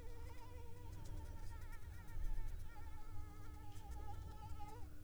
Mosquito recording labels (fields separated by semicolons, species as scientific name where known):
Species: Anopheles arabiensis; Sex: female; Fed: unfed; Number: one; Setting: cup